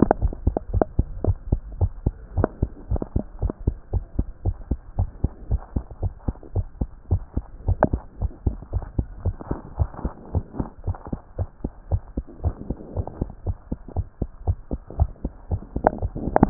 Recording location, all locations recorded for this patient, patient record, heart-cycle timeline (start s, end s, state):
tricuspid valve (TV)
aortic valve (AV)+pulmonary valve (PV)+tricuspid valve (TV)+mitral valve (MV)
#Age: Child
#Sex: Female
#Height: 121.0 cm
#Weight: 19.3 kg
#Pregnancy status: False
#Murmur: Absent
#Murmur locations: nan
#Most audible location: nan
#Systolic murmur timing: nan
#Systolic murmur shape: nan
#Systolic murmur grading: nan
#Systolic murmur pitch: nan
#Systolic murmur quality: nan
#Diastolic murmur timing: nan
#Diastolic murmur shape: nan
#Diastolic murmur grading: nan
#Diastolic murmur pitch: nan
#Diastolic murmur quality: nan
#Outcome: Abnormal
#Campaign: 2014 screening campaign
0.00	0.65	unannotated
0.65	0.72	diastole
0.72	0.84	S1
0.84	0.98	systole
0.98	1.06	S2
1.06	1.24	diastole
1.24	1.38	S1
1.38	1.50	systole
1.50	1.60	S2
1.60	1.80	diastole
1.80	1.92	S1
1.92	2.04	systole
2.04	2.14	S2
2.14	2.36	diastole
2.36	2.48	S1
2.48	2.60	systole
2.60	2.70	S2
2.70	2.90	diastole
2.90	3.02	S1
3.02	3.14	systole
3.14	3.24	S2
3.24	3.42	diastole
3.42	3.52	S1
3.52	3.66	systole
3.66	3.76	S2
3.76	3.92	diastole
3.92	4.04	S1
4.04	4.16	systole
4.16	4.26	S2
4.26	4.44	diastole
4.44	4.56	S1
4.56	4.70	systole
4.70	4.78	S2
4.78	4.98	diastole
4.98	5.10	S1
5.10	5.22	systole
5.22	5.32	S2
5.32	5.50	diastole
5.50	5.62	S1
5.62	5.74	systole
5.74	5.84	S2
5.84	6.02	diastole
6.02	6.12	S1
6.12	6.26	systole
6.26	6.36	S2
6.36	6.54	diastole
6.54	6.66	S1
6.66	6.80	systole
6.80	6.88	S2
6.88	7.10	diastole
7.10	7.22	S1
7.22	7.36	systole
7.36	7.44	S2
7.44	7.66	diastole
7.66	7.78	S1
7.78	7.92	systole
7.92	8.00	S2
8.00	8.20	diastole
8.20	8.32	S1
8.32	8.44	systole
8.44	8.56	S2
8.56	8.74	diastole
8.74	8.84	S1
8.84	8.96	systole
8.96	9.06	S2
9.06	9.24	diastole
9.24	9.36	S1
9.36	9.50	systole
9.50	9.58	S2
9.58	9.78	diastole
9.78	9.90	S1
9.90	10.04	systole
10.04	10.12	S2
10.12	10.34	diastole
10.34	10.44	S1
10.44	10.58	systole
10.58	10.68	S2
10.68	10.86	diastole
10.86	10.96	S1
10.96	11.10	systole
11.10	11.20	S2
11.20	11.38	diastole
11.38	11.48	S1
11.48	11.62	systole
11.62	11.72	S2
11.72	11.90	diastole
11.90	12.02	S1
12.02	12.16	systole
12.16	12.24	S2
12.24	12.44	diastole
12.44	12.54	S1
12.54	12.68	systole
12.68	12.78	S2
12.78	12.96	diastole
12.96	13.06	S1
13.06	13.20	systole
13.20	13.30	S2
13.30	13.46	diastole
13.46	13.56	S1
13.56	13.70	systole
13.70	13.78	S2
13.78	13.96	diastole
13.96	14.06	S1
14.06	14.20	systole
14.20	14.30	S2
14.30	14.46	diastole
14.46	14.58	S1
14.58	14.72	systole
14.72	14.80	S2
14.80	14.98	diastole
14.98	15.10	S1
15.10	15.24	systole
15.24	15.32	S2
15.32	15.50	diastole
15.50	15.62	S1
15.62	15.76	systole
15.76	15.84	S2
15.84	16.02	diastole
16.02	16.50	unannotated